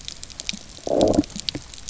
{"label": "biophony, low growl", "recorder": "SoundTrap 300"}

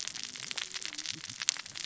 {"label": "biophony, cascading saw", "recorder": "SoundTrap 600 or HydroMoth"}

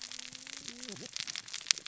{"label": "biophony, cascading saw", "recorder": "SoundTrap 600 or HydroMoth"}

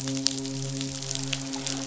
{"label": "biophony, midshipman", "recorder": "SoundTrap 500"}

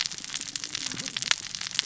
{"label": "biophony, cascading saw", "recorder": "SoundTrap 600 or HydroMoth"}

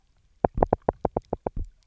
{"label": "biophony, knock", "recorder": "SoundTrap 300"}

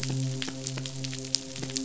{"label": "biophony, midshipman", "recorder": "SoundTrap 500"}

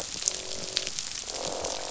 {"label": "biophony, croak", "recorder": "SoundTrap 500"}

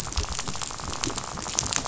{"label": "biophony, rattle", "recorder": "SoundTrap 500"}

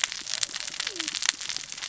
{"label": "biophony, cascading saw", "recorder": "SoundTrap 600 or HydroMoth"}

